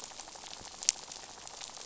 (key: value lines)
label: biophony, rattle
recorder: SoundTrap 500